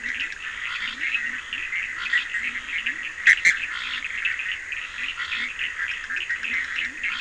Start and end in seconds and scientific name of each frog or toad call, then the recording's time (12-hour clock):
0.0	7.2	Leptodactylus latrans
0.0	7.2	Sphaenorhynchus surdus
3.2	3.6	Boana bischoffi
11:00pm